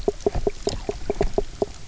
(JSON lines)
{"label": "biophony, knock croak", "recorder": "SoundTrap 300"}